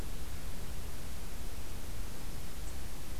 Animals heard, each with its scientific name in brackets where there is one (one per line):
Black-throated Green Warbler (Setophaga virens)